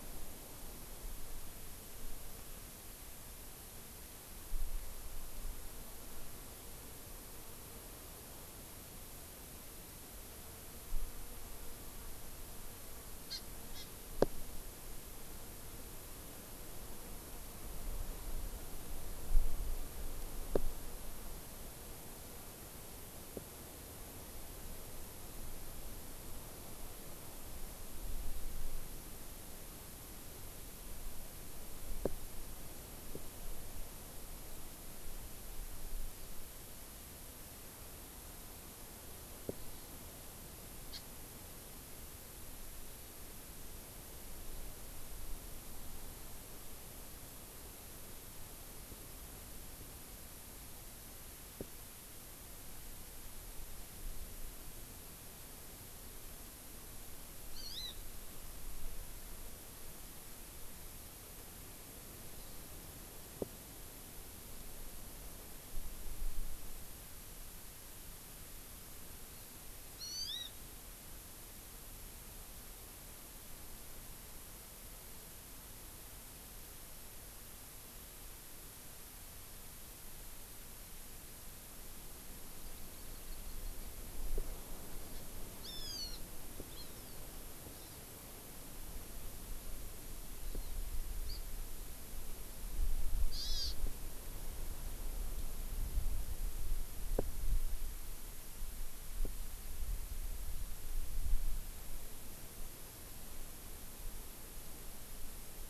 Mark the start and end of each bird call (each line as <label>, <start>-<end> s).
Hawaii Amakihi (Chlorodrepanis virens), 13.3-13.4 s
Hawaii Amakihi (Chlorodrepanis virens), 13.8-13.9 s
Hawaii Amakihi (Chlorodrepanis virens), 40.9-41.0 s
Hawaii Amakihi (Chlorodrepanis virens), 57.6-58.0 s
Hawaii Amakihi (Chlorodrepanis virens), 70.0-70.5 s
Hawaii Amakihi (Chlorodrepanis virens), 82.6-83.9 s
Hawaii Amakihi (Chlorodrepanis virens), 85.6-86.3 s
Hawaii Amakihi (Chlorodrepanis virens), 86.7-87.2 s
Hawaii Amakihi (Chlorodrepanis virens), 87.7-88.0 s
Hawaii Amakihi (Chlorodrepanis virens), 91.3-91.4 s
Hawaii Amakihi (Chlorodrepanis virens), 93.3-93.8 s